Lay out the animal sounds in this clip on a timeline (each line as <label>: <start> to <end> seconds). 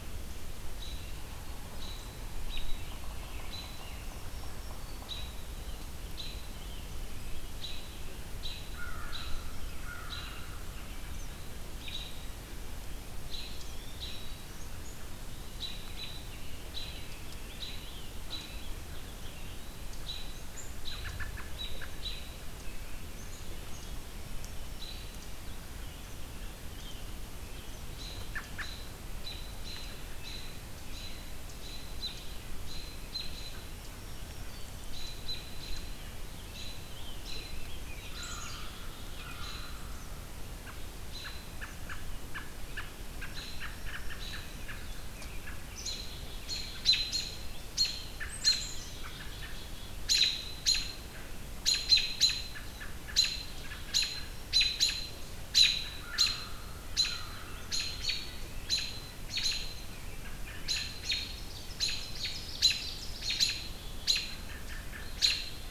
American Robin (Turdus migratorius): 0.6 to 27.1 seconds
Black-throated Green Warbler (Setophaga virens): 3.7 to 5.2 seconds
American Crow (Corvus brachyrhynchos): 8.6 to 11.6 seconds
American Robin (Turdus migratorius): 27.7 to 65.7 seconds
Black-throated Green Warbler (Setophaga virens): 33.7 to 34.9 seconds
American Crow (Corvus brachyrhynchos): 37.8 to 40.4 seconds
Black-capped Chickadee (Poecile atricapillus): 38.1 to 39.7 seconds
Black-throated Green Warbler (Setophaga virens): 43.1 to 44.5 seconds
Black-capped Chickadee (Poecile atricapillus): 48.0 to 50.0 seconds
Ovenbird (Seiurus aurocapilla): 61.1 to 63.3 seconds